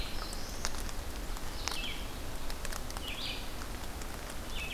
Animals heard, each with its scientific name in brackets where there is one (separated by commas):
Black-throated Blue Warbler (Setophaga caerulescens), Red-eyed Vireo (Vireo olivaceus)